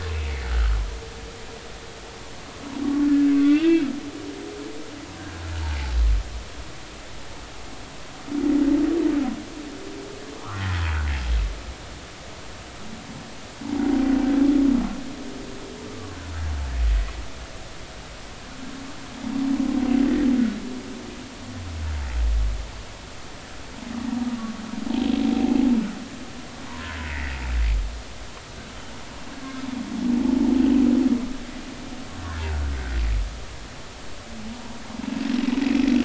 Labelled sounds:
0.4	0.7	humpback whale, 1.2 to 1.6 kHz
3.3	3.9	humpback whale, 1.1 to 2.7 kHz
10.4	10.8	humpback whale, 0.83 to 2.0 kHz
15.8	16.2	humpback whale, 1.0 to 1.2 kHz
26.7	27.4	humpback whale, 0.90 to 2.2 kHz
30.2	30.6	humpback whale, 0.83 to 0.96 kHz

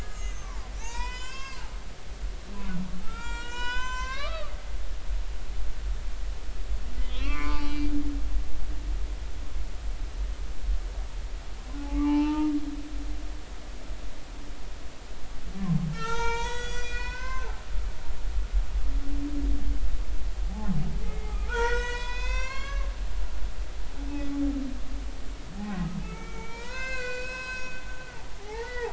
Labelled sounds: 0.0	1.6	humpback whale, 0.80 to 7.4 kHz
3.0	4.5	humpback whale, 0.83 to 7.7 kHz
7.1	7.9	humpback whale, 0.83 to 4.4 kHz
11.8	12.5	humpback whale, 0.80 to 3.1 kHz
15.9	17.5	humpback whale, 0.86 to 7.8 kHz
17.8	18.4	humpback whale, 3.8 to 4.2 kHz
21.0	22.9	humpback whale, 0.86 to 7.2 kHz
26.0	27.8	humpback whale, 0.90 to 8.0 kHz
28.4	28.9	humpback whale, 0.80 to 3.5 kHz

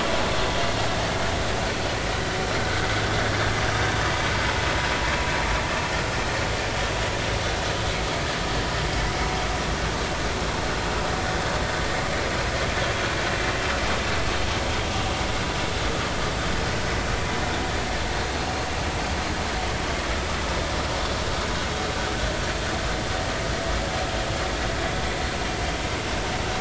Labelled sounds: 2.6	2.9	vessel noise, 1.4 to 1.6 kHz

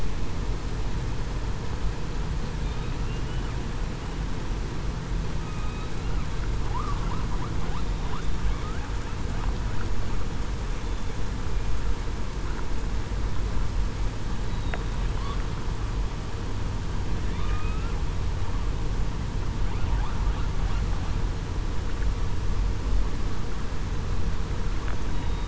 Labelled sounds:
5.4	5.7	killer whale, southern resident, 1.2 to 1.3 kHz
6.6	7.0	killer whale, southern resident, 0.80 to 1.3 kHz
17.4	17.9	killer whale, southern resident, 1.2 to 2.7 kHz
25.1	25.4	killer whale, southern resident, 3.7 to 3.9 kHz

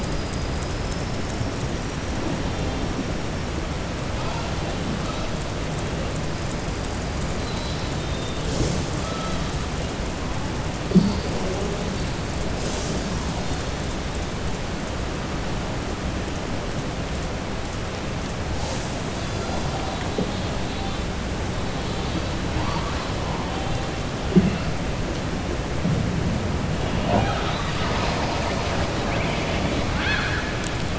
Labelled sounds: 29.8	30.5	killer whale, southern resident, 0.87 to 5.2 kHz

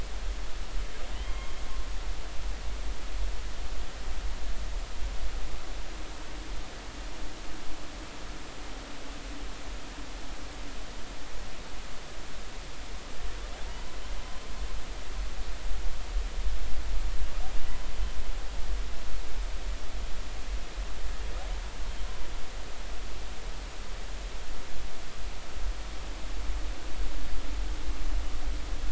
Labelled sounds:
1.1	1.5	humpback whale, 1.0 to 3.3 kHz

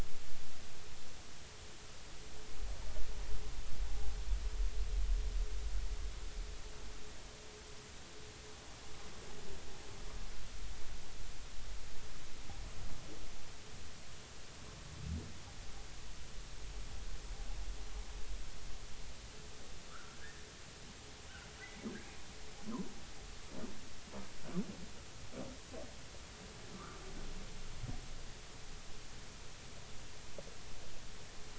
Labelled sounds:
3.9	4.1	humpback whale, 0.80 to 0.86 kHz
19.9	20.4	humpback whale, 1.1 to 1.9 kHz
26.7	27.0	humpback whale, 0.99 to 1.5 kHz

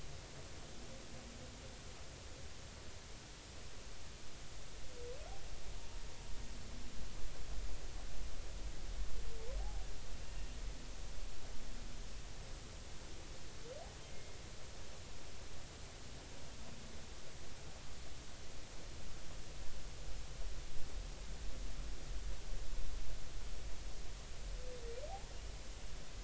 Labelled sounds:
9.6	9.8	humpback whale, 0.80 to 0.90 kHz

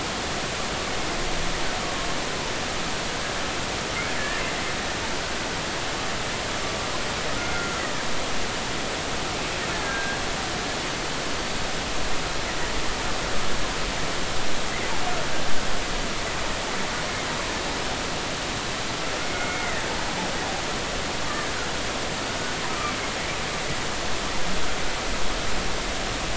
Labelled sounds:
4.2	4.4	killer whale, Bigg's (transient), 1.7 to 1.9 kHz
7.4	7.8	killer whale, Bigg's (transient), 1.3 to 1.6 kHz
9.8	10.2	killer whale, Bigg's (transient), 1.5 to 1.7 kHz
19.2	19.8	killer whale, Bigg's (transient), 1.7 to 2.3 kHz
22.7	22.9	killer whale, Bigg's (transient), 1.1 to 1.3 kHz

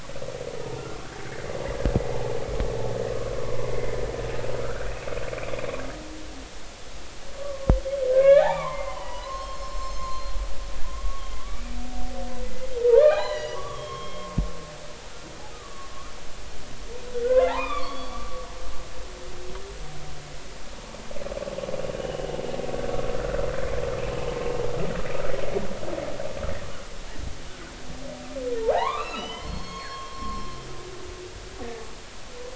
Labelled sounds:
3.4	4.0	humpback whale, 0.96 to 2.2 kHz
4.6	5.1	humpback whale, 1.2 to 2.7 kHz
7.4	10.4	humpback whale, 0.80 to 7.5 kHz
11.0	11.2	humpback whale, 1.1 to 1.2 kHz
13.0	14.3	humpback whale, 0.80 to 7.2 kHz
15.5	15.9	humpback whale, 1.1 to 1.3 kHz
17.2	18.4	humpback whale, 0.80 to 5.0 kHz
22.0	22.4	humpback whale, 2.8 to 3.0 kHz
23.2	23.5	humpback whale, 1.3 to 1.6 kHz
28.6	30.7	humpback whale, 0.80 to 4.4 kHz

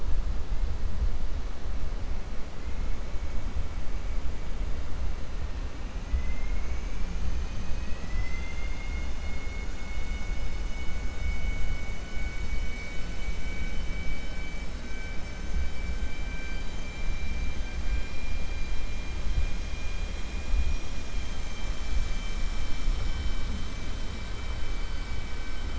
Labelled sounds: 11.1	12.0	vessel noise, 1.5 to 3.0 kHz

